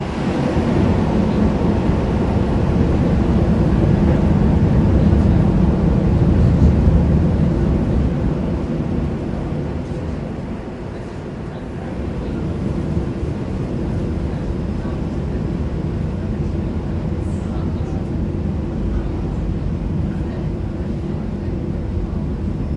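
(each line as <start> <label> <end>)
0.0 A suburban train moves steadily with rhythmic and occasional metallic noises, creating an old-fashioned ambience. 10.7
10.7 A suburban train moving in an industrial setting with faint human voices in the background. 22.8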